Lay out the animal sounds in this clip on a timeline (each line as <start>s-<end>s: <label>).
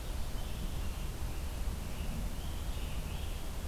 0.0s-3.7s: Scarlet Tanager (Piranga olivacea)